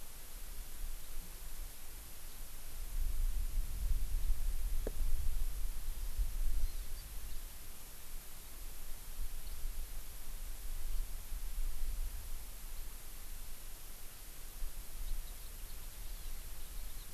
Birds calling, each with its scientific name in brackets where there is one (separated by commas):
Warbling White-eye (Zosterops japonicus), Hawaii Amakihi (Chlorodrepanis virens)